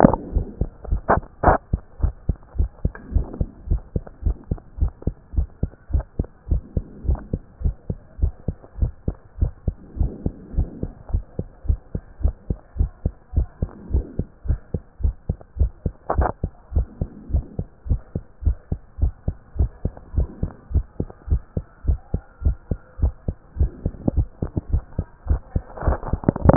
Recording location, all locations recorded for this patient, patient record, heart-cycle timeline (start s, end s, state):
tricuspid valve (TV)
aortic valve (AV)+pulmonary valve (PV)+tricuspid valve (TV)+mitral valve (MV)
#Age: Child
#Sex: Male
#Height: 131.0 cm
#Weight: 24.8 kg
#Pregnancy status: False
#Murmur: Absent
#Murmur locations: nan
#Most audible location: nan
#Systolic murmur timing: nan
#Systolic murmur shape: nan
#Systolic murmur grading: nan
#Systolic murmur pitch: nan
#Systolic murmur quality: nan
#Diastolic murmur timing: nan
#Diastolic murmur shape: nan
#Diastolic murmur grading: nan
#Diastolic murmur pitch: nan
#Diastolic murmur quality: nan
#Outcome: Normal
#Campaign: 2014 screening campaign
0.00	0.20	unannotated
0.20	0.34	diastole
0.34	0.46	S1
0.46	0.60	systole
0.60	0.70	S2
0.70	0.90	diastole
0.90	1.00	S1
1.00	1.14	systole
1.14	1.22	S2
1.22	1.44	diastole
1.44	1.58	S1
1.58	1.72	systole
1.72	1.80	S2
1.80	2.02	diastole
2.02	2.14	S1
2.14	2.28	systole
2.28	2.36	S2
2.36	2.58	diastole
2.58	2.70	S1
2.70	2.84	systole
2.84	2.92	S2
2.92	3.14	diastole
3.14	3.26	S1
3.26	3.38	systole
3.38	3.48	S2
3.48	3.68	diastole
3.68	3.82	S1
3.82	3.94	systole
3.94	4.02	S2
4.02	4.24	diastole
4.24	4.36	S1
4.36	4.50	systole
4.50	4.58	S2
4.58	4.80	diastole
4.80	4.92	S1
4.92	5.06	systole
5.06	5.14	S2
5.14	5.36	diastole
5.36	5.48	S1
5.48	5.62	systole
5.62	5.70	S2
5.70	5.92	diastole
5.92	6.04	S1
6.04	6.18	systole
6.18	6.26	S2
6.26	6.50	diastole
6.50	6.62	S1
6.62	6.76	systole
6.76	6.84	S2
6.84	7.06	diastole
7.06	7.18	S1
7.18	7.32	systole
7.32	7.42	S2
7.42	7.62	diastole
7.62	7.74	S1
7.74	7.88	systole
7.88	7.98	S2
7.98	8.20	diastole
8.20	8.32	S1
8.32	8.46	systole
8.46	8.56	S2
8.56	8.80	diastole
8.80	8.92	S1
8.92	9.06	systole
9.06	9.16	S2
9.16	9.40	diastole
9.40	9.52	S1
9.52	9.66	systole
9.66	9.76	S2
9.76	9.98	diastole
9.98	10.12	S1
10.12	10.24	systole
10.24	10.34	S2
10.34	10.56	diastole
10.56	10.68	S1
10.68	10.82	systole
10.82	10.92	S2
10.92	11.12	diastole
11.12	11.24	S1
11.24	11.38	systole
11.38	11.46	S2
11.46	11.68	diastole
11.68	11.80	S1
11.80	11.94	systole
11.94	12.02	S2
12.02	12.22	diastole
12.22	12.34	S1
12.34	12.48	systole
12.48	12.58	S2
12.58	12.78	diastole
12.78	12.90	S1
12.90	13.04	systole
13.04	13.12	S2
13.12	13.36	diastole
13.36	13.48	S1
13.48	13.60	systole
13.60	13.70	S2
13.70	13.92	diastole
13.92	14.04	S1
14.04	14.18	systole
14.18	14.26	S2
14.26	14.48	diastole
14.48	14.60	S1
14.60	14.72	systole
14.72	14.82	S2
14.82	15.02	diastole
15.02	15.14	S1
15.14	15.28	systole
15.28	15.36	S2
15.36	15.58	diastole
15.58	15.70	S1
15.70	15.84	systole
15.84	15.94	S2
15.94	16.16	diastole
16.16	16.30	S1
16.30	16.42	systole
16.42	16.52	S2
16.52	16.74	diastole
16.74	16.86	S1
16.86	17.00	systole
17.00	17.08	S2
17.08	17.32	diastole
17.32	17.44	S1
17.44	17.58	systole
17.58	17.66	S2
17.66	17.88	diastole
17.88	18.00	S1
18.00	18.14	systole
18.14	18.22	S2
18.22	18.44	diastole
18.44	18.56	S1
18.56	18.70	systole
18.70	18.80	S2
18.80	19.00	diastole
19.00	19.12	S1
19.12	19.26	systole
19.26	19.36	S2
19.36	19.58	diastole
19.58	19.70	S1
19.70	19.84	systole
19.84	19.92	S2
19.92	20.16	diastole
20.16	20.28	S1
20.28	20.42	systole
20.42	20.50	S2
20.50	20.72	diastole
20.72	20.84	S1
20.84	21.00	systole
21.00	21.08	S2
21.08	21.30	diastole
21.30	21.42	S1
21.42	21.56	systole
21.56	21.64	S2
21.64	21.86	diastole
21.86	21.98	S1
21.98	22.12	systole
22.12	22.22	S2
22.22	22.44	diastole
22.44	22.56	S1
22.56	22.70	systole
22.70	22.78	S2
22.78	23.00	diastole
23.00	23.14	S1
23.14	23.26	systole
23.26	23.36	S2
23.36	23.58	diastole
23.58	26.56	unannotated